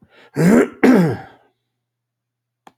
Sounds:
Throat clearing